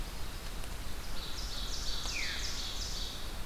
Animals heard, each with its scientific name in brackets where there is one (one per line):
Ovenbird (Seiurus aurocapilla)
Veery (Catharus fuscescens)